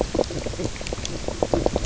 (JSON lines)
{"label": "biophony, knock croak", "recorder": "SoundTrap 300"}